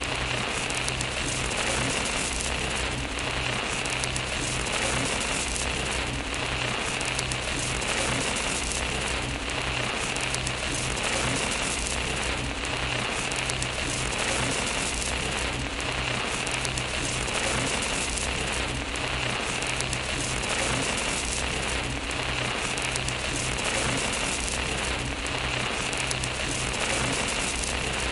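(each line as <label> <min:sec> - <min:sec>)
Static noise from a radio repeating in a pattern. 0:00.0 - 0:28.1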